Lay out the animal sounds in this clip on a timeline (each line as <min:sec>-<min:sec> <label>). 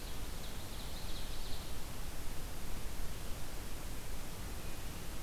0:00.1-0:01.7 Ovenbird (Seiurus aurocapilla)